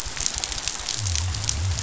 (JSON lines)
{"label": "biophony", "recorder": "SoundTrap 500"}